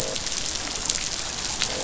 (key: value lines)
label: biophony, croak
recorder: SoundTrap 500